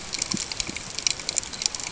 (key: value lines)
label: ambient
recorder: HydroMoth